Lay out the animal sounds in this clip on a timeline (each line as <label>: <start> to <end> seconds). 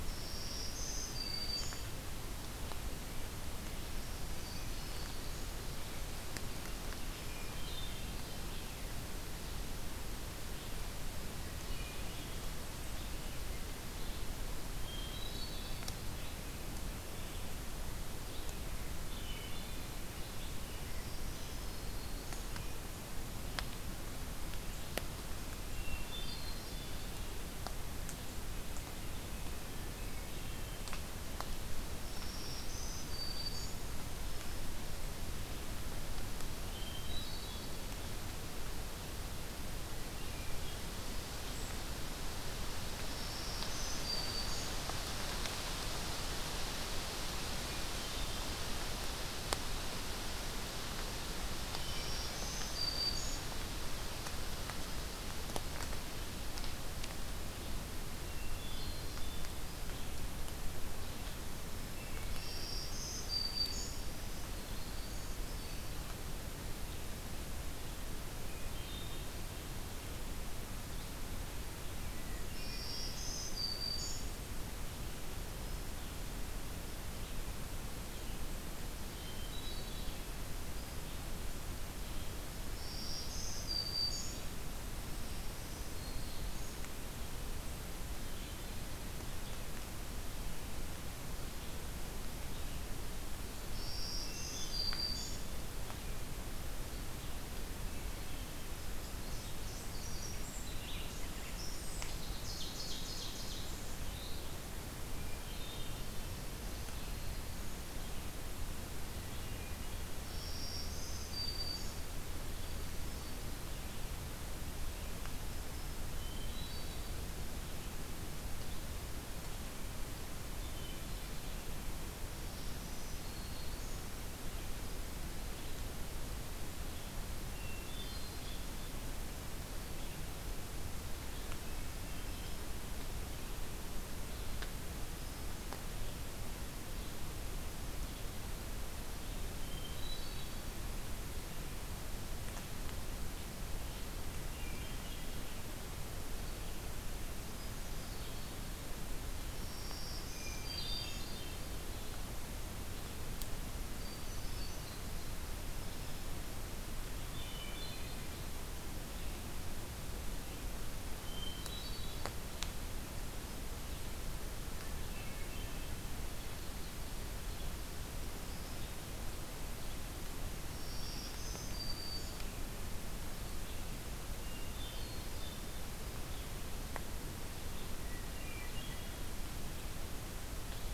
Black-throated Green Warbler (Setophaga virens): 0.0 to 1.8 seconds
Black-throated Green Warbler (Setophaga virens): 4.0 to 5.5 seconds
Hermit Thrush (Catharus guttatus): 7.0 to 8.3 seconds
Red-eyed Vireo (Vireo olivaceus): 7.5 to 25.2 seconds
Hermit Thrush (Catharus guttatus): 11.2 to 12.5 seconds
Hermit Thrush (Catharus guttatus): 14.8 to 15.9 seconds
Hermit Thrush (Catharus guttatus): 18.9 to 19.9 seconds
Black-throated Green Warbler (Setophaga virens): 20.9 to 22.5 seconds
Hermit Thrush (Catharus guttatus): 25.8 to 27.2 seconds
Hermit Thrush (Catharus guttatus): 29.9 to 30.9 seconds
Black-throated Green Warbler (Setophaga virens): 32.0 to 33.9 seconds
Hermit Thrush (Catharus guttatus): 36.7 to 37.8 seconds
Hermit Thrush (Catharus guttatus): 39.9 to 40.9 seconds
Black-throated Green Warbler (Setophaga virens): 43.1 to 44.8 seconds
Black-throated Green Warbler (Setophaga virens): 51.8 to 53.3 seconds
Hermit Thrush (Catharus guttatus): 58.1 to 59.6 seconds
Black-throated Green Warbler (Setophaga virens): 62.3 to 65.4 seconds
Hermit Thrush (Catharus guttatus): 64.9 to 66.1 seconds
Hermit Thrush (Catharus guttatus): 68.3 to 69.5 seconds
Hermit Thrush (Catharus guttatus): 72.1 to 73.3 seconds
Black-throated Green Warbler (Setophaga virens): 72.5 to 74.3 seconds
Hermit Thrush (Catharus guttatus): 75.4 to 76.0 seconds
Hermit Thrush (Catharus guttatus): 79.1 to 80.4 seconds
Black-throated Green Warbler (Setophaga virens): 82.7 to 84.4 seconds
Black-throated Green Warbler (Setophaga virens): 85.1 to 86.8 seconds
Black-throated Green Warbler (Setophaga virens): 93.6 to 95.4 seconds
Hermit Thrush (Catharus guttatus): 94.2 to 94.9 seconds
unidentified call: 98.9 to 104.6 seconds
Ovenbird (Seiurus aurocapilla): 102.4 to 103.8 seconds
Hermit Thrush (Catharus guttatus): 105.1 to 106.3 seconds
Black-throated Green Warbler (Setophaga virens): 106.0 to 107.8 seconds
Hermit Thrush (Catharus guttatus): 109.0 to 110.5 seconds
Black-throated Green Warbler (Setophaga virens): 110.2 to 112.1 seconds
Hermit Thrush (Catharus guttatus): 112.6 to 113.8 seconds
Hermit Thrush (Catharus guttatus): 116.1 to 117.2 seconds
Hermit Thrush (Catharus guttatus): 120.5 to 121.6 seconds
Black-throated Green Warbler (Setophaga virens): 122.4 to 124.0 seconds
Hermit Thrush (Catharus guttatus): 127.6 to 129.0 seconds
Hermit Thrush (Catharus guttatus): 131.5 to 132.6 seconds
Hermit Thrush (Catharus guttatus): 135.1 to 135.9 seconds
Hermit Thrush (Catharus guttatus): 139.6 to 140.8 seconds
Hermit Thrush (Catharus guttatus): 144.4 to 145.6 seconds
Hermit Thrush (Catharus guttatus): 147.4 to 148.6 seconds
Black-throated Green Warbler (Setophaga virens): 149.5 to 151.3 seconds
Hermit Thrush (Catharus guttatus): 150.3 to 152.1 seconds
Hermit Thrush (Catharus guttatus): 153.9 to 155.0 seconds
Hermit Thrush (Catharus guttatus): 157.2 to 158.4 seconds
Hermit Thrush (Catharus guttatus): 161.1 to 162.4 seconds
Hermit Thrush (Catharus guttatus): 164.6 to 166.0 seconds
Black-throated Green Warbler (Setophaga virens): 170.7 to 172.4 seconds
Hermit Thrush (Catharus guttatus): 174.4 to 175.8 seconds
Hermit Thrush (Catharus guttatus): 178.1 to 179.2 seconds